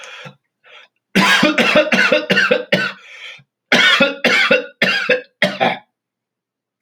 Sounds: Cough